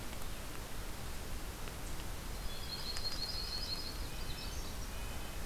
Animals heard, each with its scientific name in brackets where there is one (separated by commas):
Yellow-rumped Warbler (Setophaga coronata), Red-breasted Nuthatch (Sitta canadensis), Magnolia Warbler (Setophaga magnolia)